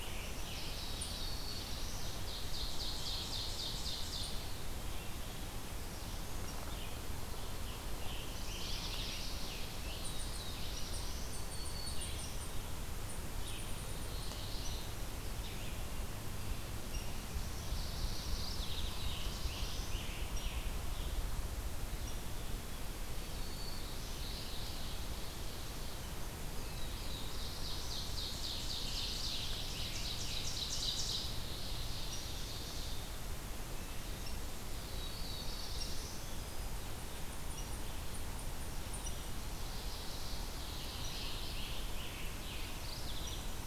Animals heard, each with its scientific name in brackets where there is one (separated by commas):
Black-throated Blue Warbler (Setophaga caerulescens), Red-eyed Vireo (Vireo olivaceus), Black-throated Green Warbler (Setophaga virens), Ovenbird (Seiurus aurocapilla), Scarlet Tanager (Piranga olivacea), Mourning Warbler (Geothlypis philadelphia), Eastern Chipmunk (Tamias striatus)